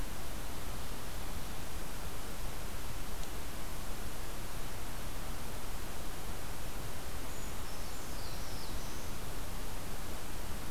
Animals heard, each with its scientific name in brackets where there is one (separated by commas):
Black-throated Blue Warbler (Setophaga caerulescens), Brown Creeper (Certhia americana)